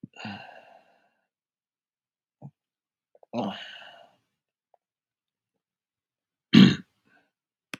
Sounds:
Throat clearing